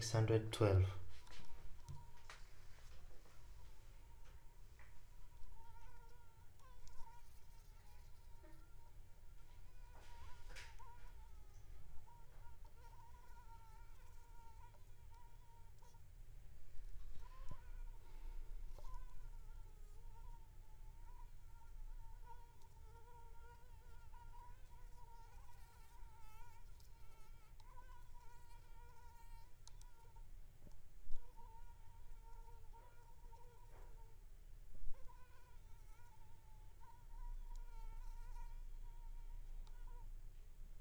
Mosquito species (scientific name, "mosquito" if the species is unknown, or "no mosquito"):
Anopheles arabiensis